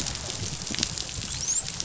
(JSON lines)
{"label": "biophony, dolphin", "recorder": "SoundTrap 500"}